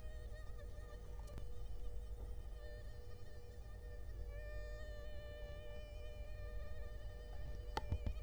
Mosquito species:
Culex quinquefasciatus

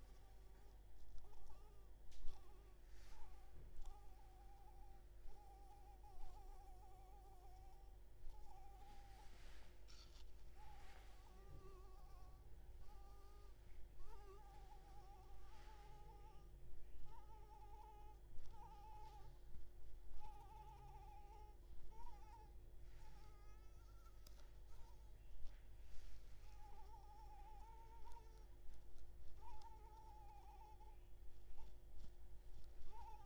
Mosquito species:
Anopheles maculipalpis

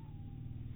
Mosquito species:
mosquito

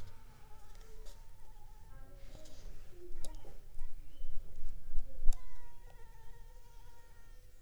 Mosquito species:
Anopheles funestus s.l.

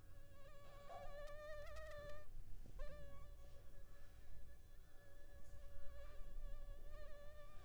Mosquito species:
Anopheles arabiensis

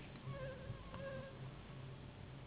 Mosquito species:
Anopheles gambiae s.s.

